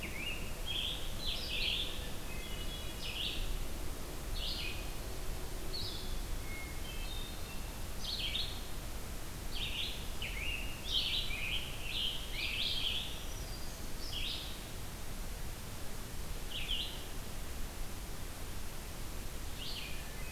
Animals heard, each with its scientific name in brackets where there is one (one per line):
Hermit Thrush (Catharus guttatus)
Red-eyed Vireo (Vireo olivaceus)
Black-throated Green Warbler (Setophaga virens)
Scarlet Tanager (Piranga olivacea)